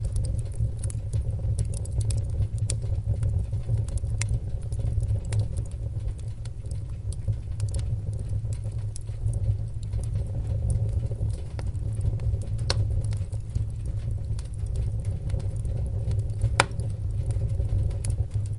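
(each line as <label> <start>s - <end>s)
A fireplace burning and roaring. 0.0s - 18.6s
Continuous subtle crackling of fire burning. 0.1s - 18.6s
A single loud crack from a burning fireplace. 4.1s - 4.3s
A single loud crack from a burning fireplace. 12.6s - 12.8s
A single loud crack from a burning fireplace. 16.5s - 16.7s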